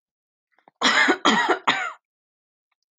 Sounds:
Cough